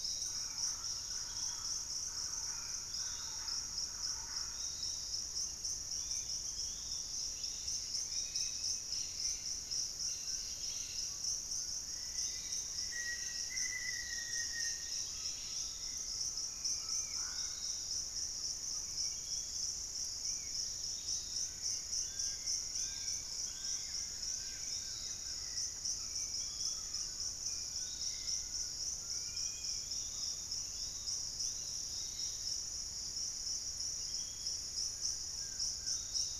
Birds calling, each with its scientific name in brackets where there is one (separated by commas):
Undulated Tinamou (Crypturellus undulatus), Yellow-margined Flycatcher (Tolmomyias assimilis), Spot-winged Antshrike (Pygiptila stellaris), Dusky-capped Greenlet (Pachysylvia hypoxantha), Collared Trogon (Trogon collaris), Dusky-capped Flycatcher (Myiarchus tuberculifer), Fasciated Antshrike (Cymbilaimus lineatus), Buff-throated Woodcreeper (Xiphorhynchus guttatus), Piratic Flycatcher (Legatus leucophaius), Wing-barred Piprites (Piprites chloris), Thrush-like Wren (Campylorhynchus turdinus), Black-faced Antthrush (Formicarius analis)